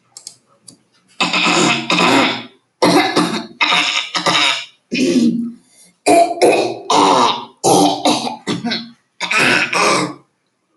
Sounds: Throat clearing